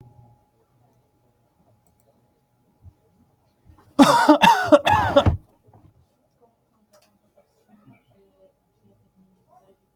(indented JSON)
{
  "expert_labels": [
    {
      "quality": "ok",
      "cough_type": "unknown",
      "dyspnea": false,
      "wheezing": false,
      "stridor": false,
      "choking": false,
      "congestion": false,
      "nothing": true,
      "diagnosis": "healthy cough",
      "severity": "mild"
    }
  ],
  "age": 43,
  "gender": "male",
  "respiratory_condition": false,
  "fever_muscle_pain": false,
  "status": "symptomatic"
}